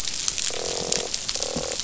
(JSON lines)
{"label": "biophony, croak", "recorder": "SoundTrap 500"}